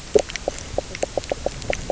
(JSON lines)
{"label": "biophony, knock croak", "recorder": "SoundTrap 300"}